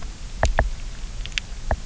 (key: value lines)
label: biophony, knock
recorder: SoundTrap 300